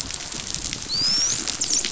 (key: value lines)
label: biophony, dolphin
recorder: SoundTrap 500